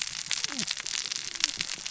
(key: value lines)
label: biophony, cascading saw
recorder: SoundTrap 600 or HydroMoth